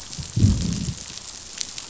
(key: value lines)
label: biophony, growl
recorder: SoundTrap 500